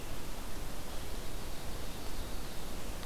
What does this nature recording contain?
Ovenbird